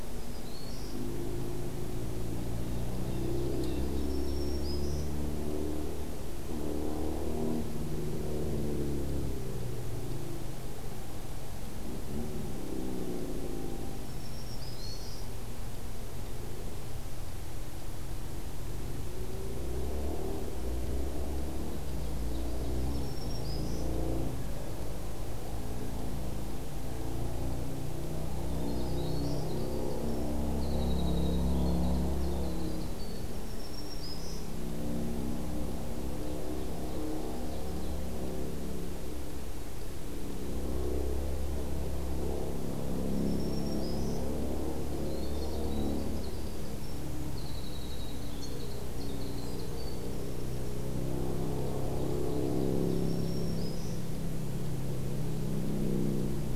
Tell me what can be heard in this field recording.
Black-throated Green Warbler, Ovenbird, Blue Jay, Winter Wren